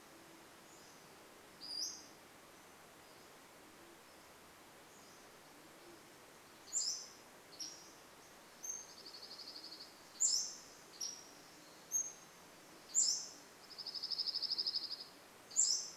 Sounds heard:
Band-tailed Pigeon call
Pacific-slope Flycatcher song
Pacific-slope Flycatcher call
Dark-eyed Junco song

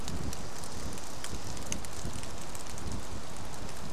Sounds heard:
rain

